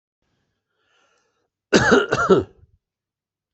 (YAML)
expert_labels:
- quality: good
  cough_type: dry
  dyspnea: false
  wheezing: true
  stridor: false
  choking: false
  congestion: false
  nothing: false
  diagnosis: obstructive lung disease
  severity: mild
age: 71
gender: male
respiratory_condition: false
fever_muscle_pain: false
status: healthy